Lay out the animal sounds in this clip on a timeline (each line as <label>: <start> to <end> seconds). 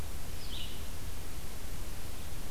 Red-eyed Vireo (Vireo olivaceus): 0.3 to 0.9 seconds